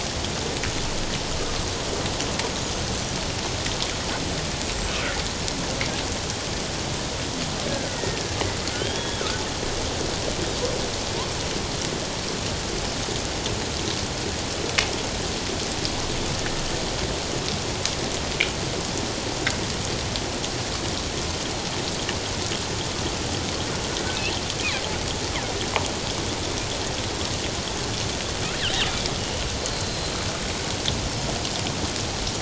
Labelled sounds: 4.4	4.7	killer whale, northern resident, G clan, 7.7 to 8.0 kHz
7.7	8.2	killer whale, northern resident, G clan, 1.4 to 2.0 kHz
8.7	9.2	killer whale, northern resident, G clan, 1.4 to 3.4 kHz
29.7	30.2	killer whale, northern resident, G clan, 4.0 to 4.3 kHz

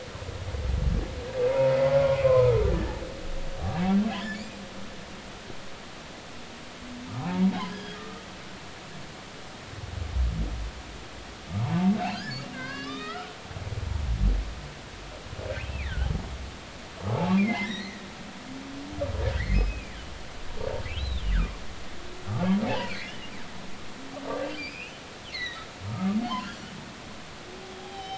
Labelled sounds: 1.5	3.0	humpback whale, 0.86 to 2.6 kHz
4.1	4.5	humpback whale, 1.7 to 7.1 kHz
7.7	8.8	humpback whale, 0.80 to 3.4 kHz
12.0	13.4	humpback whale, 0.99 to 5.4 kHz
15.5	16.1	humpback whale, 1.4 to 2.9 kHz
17.1	18.1	humpback whale, 0.80 to 6.0 kHz
19.5	19.9	humpback whale, 2.2 to 2.7 kHz
21.0	21.2	humpback whale, 3.4 to 4.1 kHz
22.6	23.3	humpback whale, 0.80 to 3.1 kHz
24.5	24.9	humpback whale, 2.2 to 5.2 kHz
25.3	26.2	humpback whale, 1.1 to 4.4 kHz
27.8	28.1	humpback whale, 0.80 to 4.0 kHz

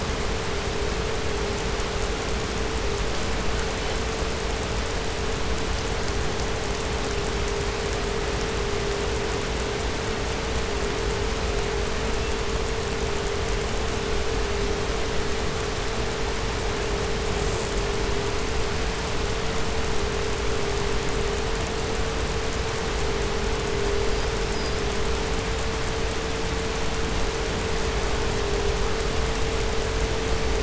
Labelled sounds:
17.2	18.0	killer whale, 5.6 to 8.0 kHz
23.9	25.0	killer whale, 4.4 to 6.1 kHz

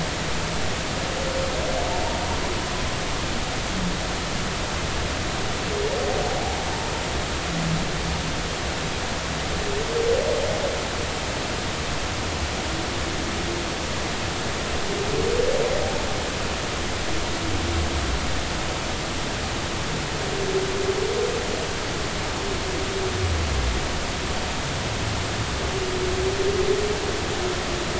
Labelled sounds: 6.3	6.6	humpback whale, 0.80 to 0.90 kHz

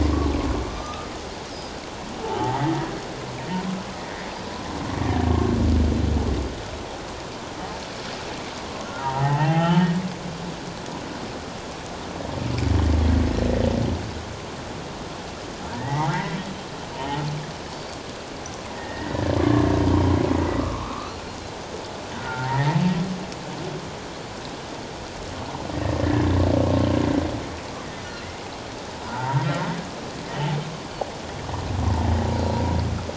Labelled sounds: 0.7	1.1	humpback whale, 1.2 to 6.1 kHz
2.2	2.7	humpback whale, 0.78 to 2.0 kHz
9.0	9.9	humpback whale, 0.78 to 3.2 kHz
15.7	16.4	humpback whale, 0.78 to 2.2 kHz
17.7	18.0	Pacific white-sided dolphin, 4.4 to 4.6 kHz
18.8	19.6	humpback whale, 1.0 to 2.0 kHz
20.6	21.3	humpback whale, 1.0 to 1.5 kHz
22.2	22.8	humpback whale, 0.84 to 2.1 kHz
26.0	26.2	humpback whale, 1.7 to 1.8 kHz
29.1	30.5	humpback whale, 0.84 to 3.1 kHz
32.4	32.6	humpback whale, 4.1 to 4.2 kHz

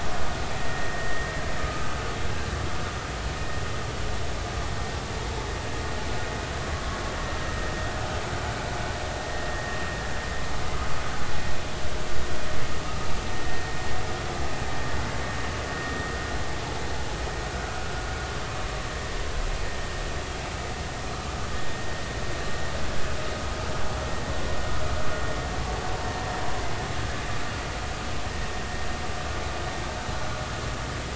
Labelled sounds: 1.0	1.3	vessel noise, 1.8 to 1.9 kHz
1.6	1.9	vessel noise, 1.2 to 1.3 kHz
13.3	13.6	vessel noise, 1.8 to 1.9 kHz

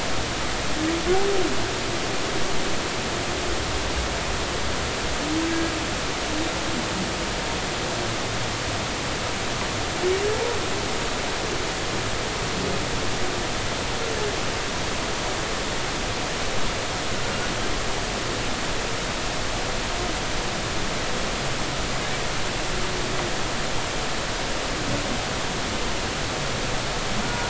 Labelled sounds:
10.3	10.6	humpback whale, 0.86 to 0.99 kHz
27.2	27.4	humpback whale, 1.4 to 1.5 kHz

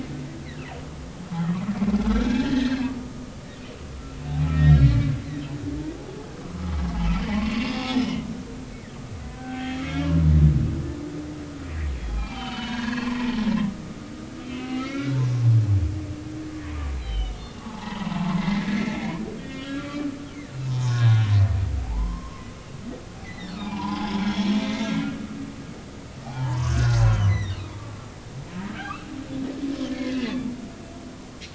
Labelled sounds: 2.0	3.3	humpback whale, 1.1 to 2.0 kHz
4.5	5.1	humpback whale, 1.8 to 4.4 kHz
6.8	7.7	humpback whale, 0.80 to 2.8 kHz
8.0	8.3	humpback whale, 2.8 to 3.2 kHz
9.4	10.1	humpback whale, 0.80 to 3.4 kHz
12.0	13.2	humpback whale, 0.80 to 3.7 kHz
14.4	15.2	humpback whale, 1.2 to 3.2 kHz
17.0	20.1	humpback whale, 0.80 to 4.4 kHz
20.5	22.5	humpback whale, 0.80 to 5.3 kHz
23.2	25.1	humpback whale, 0.80 to 5.5 kHz
26.3	27.8	humpback whale, 0.80 to 6.6 kHz
28.8	29.1	humpback whale, 2.2 to 2.8 kHz
29.8	30.4	humpback whale, 1.6 to 2.3 kHz

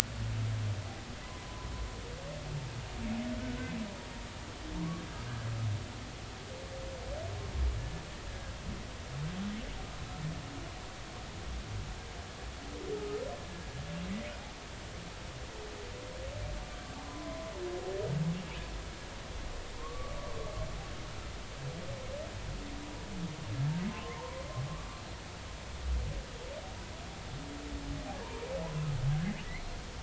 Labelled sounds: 1.2	1.7	humpback whale, 0.93 to 1.1 kHz
3.4	3.7	humpback whale, 1.4 to 1.6 kHz
7.8	8.5	humpback whale, 1.6 to 1.8 kHz
17.0	17.5	humpback whale, 0.96 to 1.1 kHz
19.8	20.2	humpback whale, 1.0 to 1.2 kHz
23.9	25.0	humpback whale, 0.86 to 1.2 kHz
28.2	28.5	humpback whale, 0.90 to 1.1 kHz

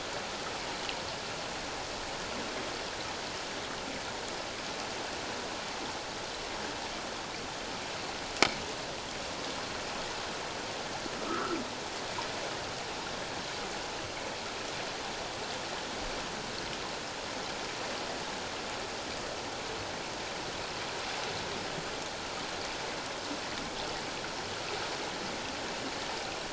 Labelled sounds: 11.2	11.6	humpback whale, 1.1 to 1.5 kHz

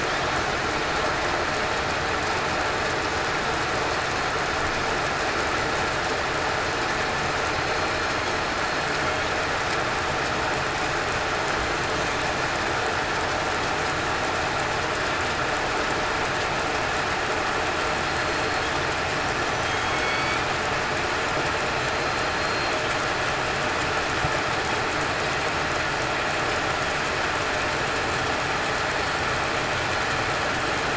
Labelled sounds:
18.1	18.5	killer whale, southern resident, 4.2 to 4.3 kHz
20.0	20.4	killer whale, southern resident, 4.4 to 4.6 kHz
22.0	22.3	killer whale, southern resident, 4.1 to 4.2 kHz

